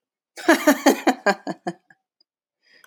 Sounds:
Laughter